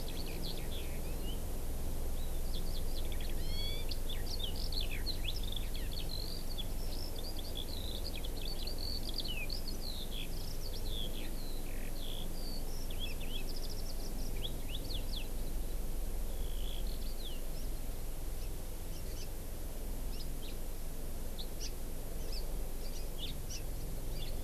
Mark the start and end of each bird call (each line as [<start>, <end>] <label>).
[0.00, 1.50] Eurasian Skylark (Alauda arvensis)
[2.10, 15.20] Eurasian Skylark (Alauda arvensis)
[16.20, 17.40] Eurasian Skylark (Alauda arvensis)
[18.90, 19.30] Hawaii Amakihi (Chlorodrepanis virens)
[21.60, 21.70] Hawaii Amakihi (Chlorodrepanis virens)
[23.50, 23.60] Hawaii Amakihi (Chlorodrepanis virens)